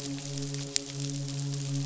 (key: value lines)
label: biophony, midshipman
recorder: SoundTrap 500